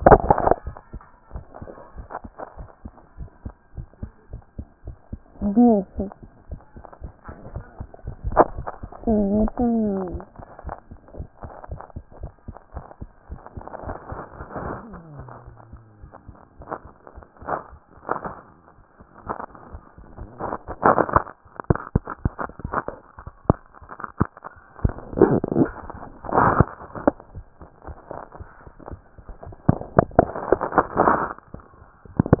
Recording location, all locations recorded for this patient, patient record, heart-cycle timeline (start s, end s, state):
tricuspid valve (TV)
pulmonary valve (PV)+tricuspid valve (TV)+mitral valve (MV)
#Age: Child
#Sex: Male
#Height: 123.0 cm
#Weight: 23.1 kg
#Pregnancy status: False
#Murmur: Absent
#Murmur locations: nan
#Most audible location: nan
#Systolic murmur timing: nan
#Systolic murmur shape: nan
#Systolic murmur grading: nan
#Systolic murmur pitch: nan
#Systolic murmur quality: nan
#Diastolic murmur timing: nan
#Diastolic murmur shape: nan
#Diastolic murmur grading: nan
#Diastolic murmur pitch: nan
#Diastolic murmur quality: nan
#Outcome: Normal
#Campaign: 2014 screening campaign
0.00	2.58	unannotated
2.58	2.68	S1
2.68	2.84	systole
2.84	2.92	S2
2.92	3.18	diastole
3.18	3.28	S1
3.28	3.44	systole
3.44	3.54	S2
3.54	3.76	diastole
3.76	3.86	S1
3.86	4.02	systole
4.02	4.10	S2
4.10	4.32	diastole
4.32	4.42	S1
4.42	4.58	systole
4.58	4.66	S2
4.66	4.86	diastole
4.86	4.96	S1
4.96	5.10	systole
5.10	5.20	S2
5.20	5.40	diastole
5.40	32.40	unannotated